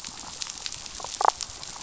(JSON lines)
{"label": "biophony, damselfish", "recorder": "SoundTrap 500"}